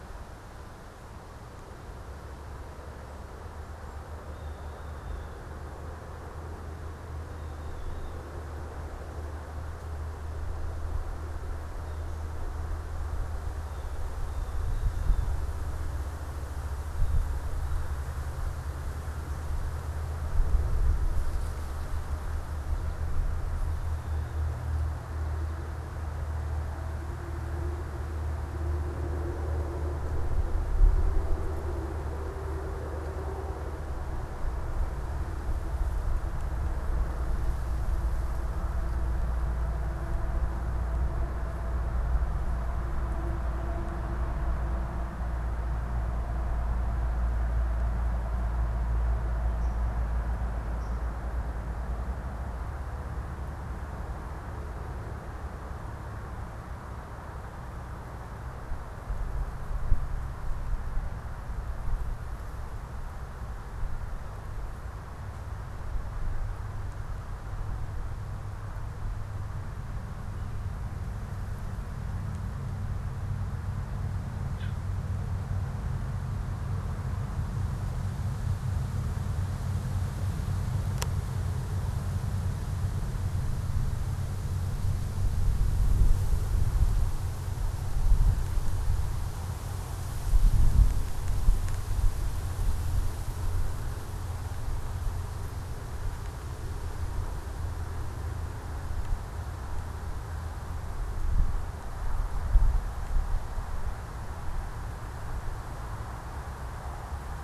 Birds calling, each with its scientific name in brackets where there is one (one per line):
Blue Jay (Cyanocitta cristata)
unidentified bird
American Goldfinch (Spinus tristis)